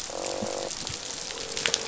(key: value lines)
label: biophony, croak
recorder: SoundTrap 500